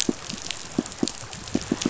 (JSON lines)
{"label": "biophony, pulse", "recorder": "SoundTrap 500"}